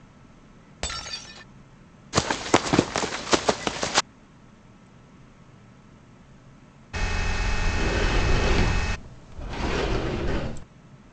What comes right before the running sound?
shatter